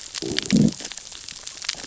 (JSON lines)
{"label": "biophony, growl", "recorder": "SoundTrap 600 or HydroMoth"}